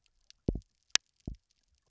{"label": "biophony, double pulse", "recorder": "SoundTrap 300"}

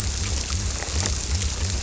{"label": "biophony", "recorder": "SoundTrap 300"}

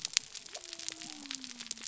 {"label": "biophony", "recorder": "SoundTrap 300"}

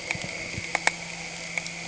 {"label": "anthrophony, boat engine", "recorder": "HydroMoth"}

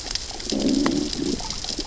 {"label": "biophony, growl", "recorder": "SoundTrap 600 or HydroMoth"}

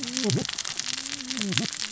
{"label": "biophony, cascading saw", "recorder": "SoundTrap 600 or HydroMoth"}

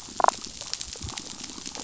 {"label": "biophony, damselfish", "recorder": "SoundTrap 500"}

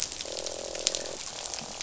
{"label": "biophony, croak", "recorder": "SoundTrap 500"}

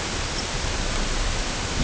{"label": "ambient", "recorder": "HydroMoth"}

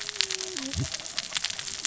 {"label": "biophony, cascading saw", "recorder": "SoundTrap 600 or HydroMoth"}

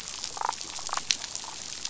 {"label": "biophony, damselfish", "recorder": "SoundTrap 500"}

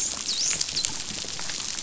{"label": "biophony, dolphin", "recorder": "SoundTrap 500"}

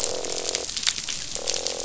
{"label": "biophony, croak", "recorder": "SoundTrap 500"}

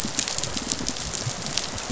{"label": "biophony, rattle response", "recorder": "SoundTrap 500"}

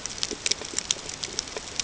{"label": "ambient", "recorder": "HydroMoth"}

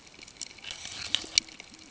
{"label": "ambient", "recorder": "HydroMoth"}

